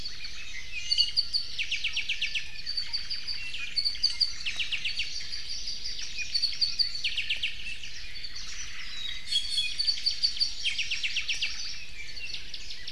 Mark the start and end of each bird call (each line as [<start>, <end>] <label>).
[0.00, 0.70] Omao (Myadestes obscurus)
[0.50, 1.10] Iiwi (Drepanis coccinea)
[0.80, 7.60] Apapane (Himatione sanguinea)
[2.60, 3.50] Omao (Myadestes obscurus)
[8.40, 9.10] Omao (Myadestes obscurus)
[9.00, 9.80] Iiwi (Drepanis coccinea)
[9.70, 12.90] Apapane (Himatione sanguinea)
[11.10, 11.90] Omao (Myadestes obscurus)